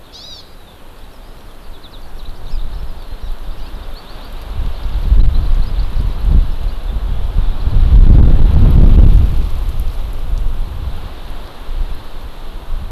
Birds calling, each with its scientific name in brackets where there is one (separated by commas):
Hawaii Amakihi (Chlorodrepanis virens), Eurasian Skylark (Alauda arvensis)